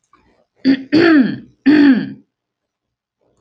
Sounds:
Throat clearing